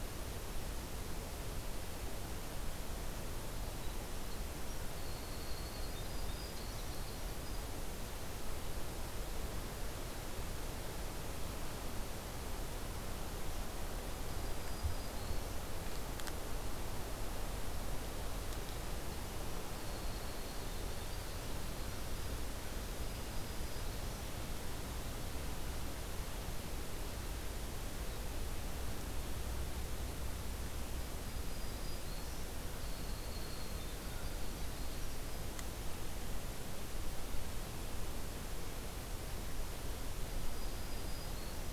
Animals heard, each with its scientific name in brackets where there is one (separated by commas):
Black-throated Green Warbler (Setophaga virens), Winter Wren (Troglodytes hiemalis)